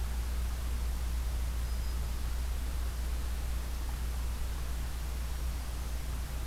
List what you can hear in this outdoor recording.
Hermit Thrush